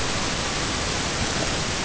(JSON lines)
{"label": "ambient", "recorder": "HydroMoth"}